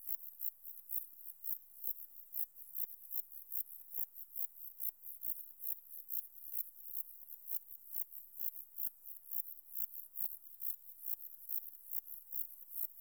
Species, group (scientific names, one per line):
Zeuneriana abbreviata
Orthoptera